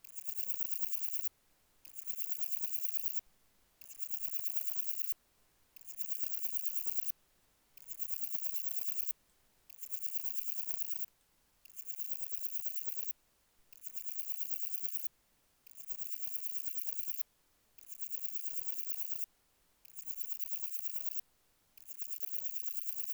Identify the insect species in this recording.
Parnassiana chelmos